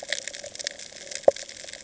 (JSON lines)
{"label": "ambient", "recorder": "HydroMoth"}